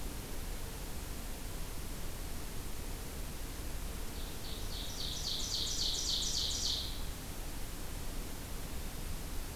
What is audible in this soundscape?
Ovenbird